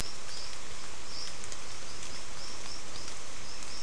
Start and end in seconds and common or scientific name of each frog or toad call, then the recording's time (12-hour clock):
none
6:00pm